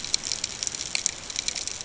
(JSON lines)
{"label": "ambient", "recorder": "HydroMoth"}